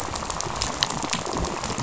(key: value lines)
label: biophony, rattle
recorder: SoundTrap 500